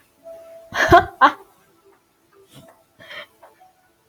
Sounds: Laughter